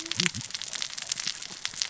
{"label": "biophony, cascading saw", "recorder": "SoundTrap 600 or HydroMoth"}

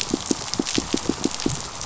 {"label": "biophony, pulse", "recorder": "SoundTrap 500"}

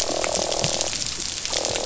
{"label": "biophony, croak", "recorder": "SoundTrap 500"}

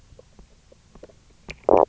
{"label": "biophony, knock croak", "recorder": "SoundTrap 300"}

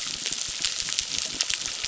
{"label": "biophony, crackle", "recorder": "SoundTrap 600"}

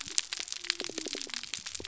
{"label": "biophony", "recorder": "SoundTrap 300"}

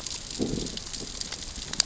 {"label": "biophony, growl", "recorder": "SoundTrap 600 or HydroMoth"}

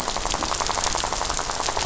{"label": "biophony, rattle", "recorder": "SoundTrap 500"}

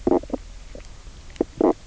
{"label": "biophony, knock croak", "recorder": "SoundTrap 300"}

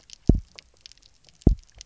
{"label": "biophony, double pulse", "recorder": "SoundTrap 300"}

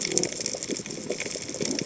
{"label": "biophony", "recorder": "HydroMoth"}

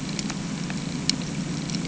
{"label": "anthrophony, boat engine", "recorder": "HydroMoth"}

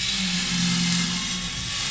{"label": "anthrophony, boat engine", "recorder": "SoundTrap 500"}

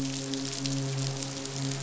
{"label": "biophony, midshipman", "recorder": "SoundTrap 500"}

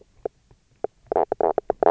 {"label": "biophony, knock croak", "recorder": "SoundTrap 300"}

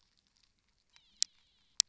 {"label": "biophony", "recorder": "SoundTrap 300"}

